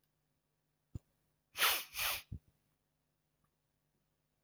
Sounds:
Sniff